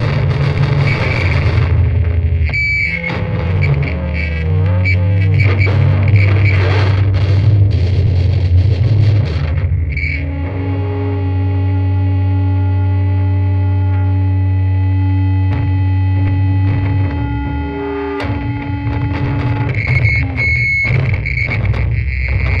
Is this before a concert?
yes